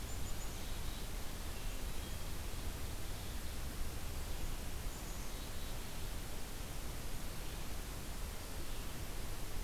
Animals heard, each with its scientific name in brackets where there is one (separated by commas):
Black-capped Chickadee (Poecile atricapillus)